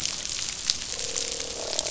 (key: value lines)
label: biophony, croak
recorder: SoundTrap 500